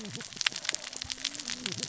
{"label": "biophony, cascading saw", "recorder": "SoundTrap 600 or HydroMoth"}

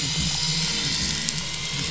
{"label": "anthrophony, boat engine", "recorder": "SoundTrap 500"}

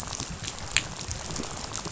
{"label": "biophony, rattle", "recorder": "SoundTrap 500"}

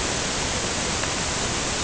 {"label": "ambient", "recorder": "HydroMoth"}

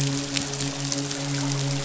{"label": "biophony, midshipman", "recorder": "SoundTrap 500"}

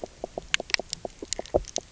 {"label": "biophony, knock croak", "recorder": "SoundTrap 300"}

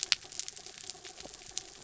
{"label": "anthrophony, mechanical", "recorder": "SoundTrap 300"}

